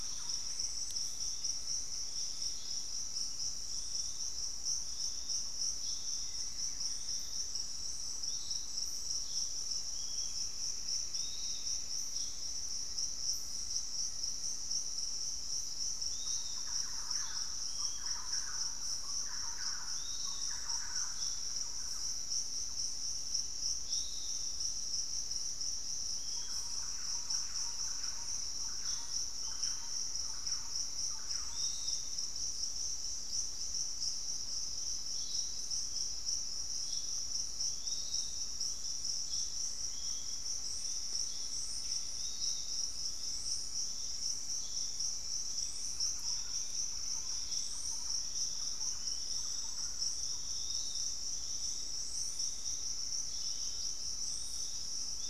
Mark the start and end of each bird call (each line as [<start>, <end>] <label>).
[0.00, 0.80] Thrush-like Wren (Campylorhynchus turdinus)
[0.00, 0.90] Pygmy Antwren (Myrmotherula brachyura)
[0.00, 55.29] Piratic Flycatcher (Legatus leucophaius)
[6.00, 7.60] unidentified bird
[9.80, 12.00] Pygmy Antwren (Myrmotherula brachyura)
[12.60, 14.80] Black-faced Antthrush (Formicarius analis)
[16.00, 32.30] Thrush-like Wren (Campylorhynchus turdinus)
[26.80, 28.80] Pygmy Antwren (Myrmotherula brachyura)
[28.60, 31.00] Black-faced Antthrush (Formicarius analis)
[36.40, 42.60] unidentified bird
[42.20, 47.90] Gray Antwren (Myrmotherula menetriesii)
[45.50, 47.90] Pygmy Antwren (Myrmotherula brachyura)
[45.70, 51.00] Thrush-like Wren (Campylorhynchus turdinus)
[48.00, 50.40] Black-faced Antthrush (Formicarius analis)